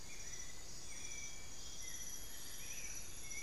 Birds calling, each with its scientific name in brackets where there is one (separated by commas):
Amazonian Barred-Woodcreeper (Dendrocolaptes certhia), Amazonian Grosbeak (Cyanoloxia rothschildii), White-necked Thrush (Turdus albicollis)